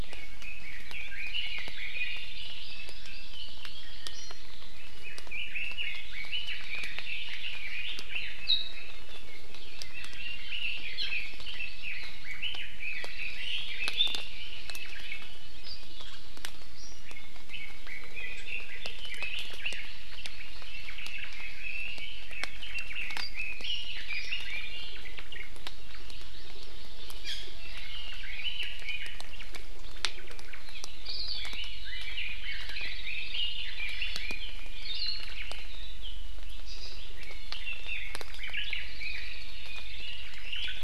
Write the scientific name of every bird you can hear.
Leiothrix lutea, Loxops mana, Chlorodrepanis virens, Drepanis coccinea, Myadestes obscurus, Loxops coccineus